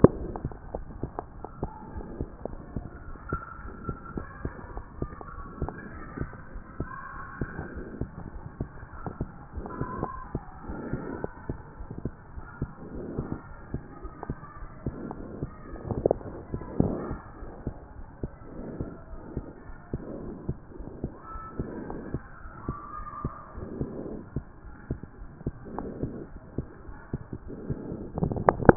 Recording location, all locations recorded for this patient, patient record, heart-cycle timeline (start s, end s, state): aortic valve (AV)
aortic valve (AV)+pulmonary valve (PV)+tricuspid valve (TV)
#Age: Child
#Sex: Male
#Height: 103.0 cm
#Weight: 18.7 kg
#Pregnancy status: False
#Murmur: Present
#Murmur locations: pulmonary valve (PV)+tricuspid valve (TV)
#Most audible location: pulmonary valve (PV)
#Systolic murmur timing: Holosystolic
#Systolic murmur shape: Plateau
#Systolic murmur grading: I/VI
#Systolic murmur pitch: Low
#Systolic murmur quality: Blowing
#Diastolic murmur timing: nan
#Diastolic murmur shape: nan
#Diastolic murmur grading: nan
#Diastolic murmur pitch: nan
#Diastolic murmur quality: nan
#Outcome: Abnormal
#Campaign: 2014 screening campaign
0.00	0.20	S1
0.20	0.40	systole
0.40	0.52	S2
0.52	0.72	diastole
0.72	0.86	S1
0.86	1.00	systole
1.00	1.14	S2
1.14	1.36	diastole
1.36	1.44	S1
1.44	1.58	systole
1.58	1.70	S2
1.70	1.94	diastole
1.94	2.08	S1
2.08	2.18	systole
2.18	2.32	S2
2.32	2.52	diastole
2.52	2.60	S1
2.60	2.72	systole
2.72	2.84	S2
2.84	3.06	diastole
3.06	3.16	S1
3.16	3.26	systole
3.26	3.40	S2
3.40	3.64	diastole
3.64	3.74	S1
3.74	3.86	systole
3.86	3.98	S2
3.98	4.18	diastole
4.18	4.28	S1
4.28	4.40	systole
4.40	4.52	S2
4.52	4.70	diastole
4.70	4.84	S1
4.84	4.98	systole
4.98	5.10	S2
5.10	5.32	diastole
5.32	5.44	S1
5.44	5.56	systole
5.56	5.70	S2
5.70	5.92	diastole
5.92	6.02	S1
6.02	6.18	systole
6.18	6.30	S2
6.30	6.52	diastole
6.52	6.62	S1
6.62	6.76	systole
6.76	6.88	S2
6.88	7.16	diastole
7.16	7.24	S1
7.24	7.38	systole
7.38	7.50	S2
7.50	7.74	diastole
7.74	7.88	S1
7.88	7.98	systole
7.98	8.10	S2
8.10	8.34	diastole
8.34	8.42	S1
8.42	8.58	systole
8.58	8.70	S2
8.70	8.94	diastole
8.94	9.04	S1
9.04	9.18	systole
9.18	9.30	S2
9.30	9.54	diastole
9.54	9.70	S1
9.70	9.78	systole
9.78	9.92	S2
9.92	10.14	diastole
10.14	10.22	S1
10.22	10.32	systole
10.32	10.42	S2
10.42	10.68	diastole
10.68	10.86	S1
10.86	11.06	systole
11.06	11.22	S2
11.22	11.48	diastole
11.48	11.58	S1
11.58	11.64	systole
11.64	11.70	S2
11.70	11.92	diastole
11.92	11.98	S1
11.98	12.04	systole
12.04	12.12	S2
12.12	12.36	diastole
12.36	12.44	S1
12.44	12.58	systole
12.58	12.70	S2
12.70	12.94	diastole
12.94	13.10	S1
13.10	13.16	systole
13.16	13.30	S2
13.30	13.52	diastole
13.52	13.58	S1
13.58	13.70	systole
13.70	13.82	S2
13.82	14.02	diastole
14.02	14.10	S1
14.10	14.28	systole
14.28	14.38	S2
14.38	14.62	diastole
14.62	14.68	S1
14.68	14.82	systole
14.82	14.96	S2
14.96	15.18	diastole
15.18	15.30	S1
15.30	15.40	systole
15.40	15.52	S2
15.52	15.72	diastole
15.72	15.82	S1
15.82	15.86	systole
15.86	16.02	S2
16.02	16.26	diastole
16.26	16.40	S1
16.40	16.52	systole
16.52	16.62	S2
16.62	16.80	diastole
16.80	16.98	S1
16.98	17.06	systole
17.06	17.20	S2
17.20	17.40	diastole
17.40	17.52	S1
17.52	17.64	systole
17.64	17.78	S2
17.78	18.00	diastole
18.00	18.08	S1
18.08	18.22	systole
18.22	18.30	S2
18.30	18.58	diastole
18.58	18.74	S1
18.74	18.78	systole
18.78	18.92	S2
18.92	19.12	diastole
19.12	19.20	S1
19.20	19.32	systole
19.32	19.44	S2
19.44	19.68	diastole
19.68	19.78	S1
19.78	19.92	systole
19.92	20.02	S2
20.02	20.24	diastole
20.24	20.36	S1
20.36	20.44	systole
20.44	20.56	S2
20.56	20.78	diastole
20.78	20.92	S1
20.92	21.02	systole
21.02	21.12	S2
21.12	21.34	diastole
21.34	21.44	S1
21.44	21.58	systole
21.58	21.72	S2
21.72	21.90	diastole
21.90	22.02	S1
22.02	22.12	systole
22.12	22.22	S2
22.22	22.46	diastole
22.46	22.52	S1
22.52	22.64	systole
22.64	22.76	S2
22.76	22.98	diastole
22.98	23.06	S1
23.06	23.24	systole
23.24	23.34	S2
23.34	23.56	diastole
23.56	23.68	S1
23.68	23.76	systole
23.76	23.90	S2
23.90	24.10	diastole
24.10	24.22	S1
24.22	24.32	systole
24.32	24.44	S2
24.44	24.66	diastole
24.66	24.74	S1
24.74	24.86	systole
24.86	24.98	S2
24.98	25.22	diastole
25.22	25.28	S1
25.28	25.42	systole
25.42	25.56	S2
25.56	25.78	diastole
25.78	25.96	S1
25.96	26.12	systole
26.12	26.28	S2
26.28	26.54	diastole
26.54	26.72	S1
26.72	26.88	systole
26.88	26.96	S2
26.96	27.14	diastole
27.14	27.26	S1
27.26	27.46	systole
27.46	27.58	S2
27.58	27.86	diastole
27.86	28.04	S1
28.04	28.16	systole
28.16	28.30	S2
28.30	28.48	diastole
28.48	28.62	S1
28.62	28.64	systole
28.64	28.77	S2